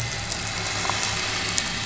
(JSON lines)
{"label": "anthrophony, boat engine", "recorder": "SoundTrap 500"}